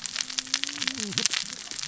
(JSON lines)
{"label": "biophony, cascading saw", "recorder": "SoundTrap 600 or HydroMoth"}